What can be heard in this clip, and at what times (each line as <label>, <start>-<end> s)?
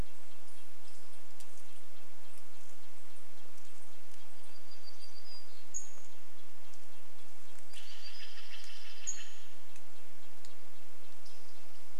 Red-breasted Nuthatch song, 0-12 s
unidentified bird chip note, 0-12 s
Pacific-slope Flycatcher call, 4-6 s
warbler song, 4-10 s
Steller's Jay call, 6-10 s
Pacific-slope Flycatcher call, 8-10 s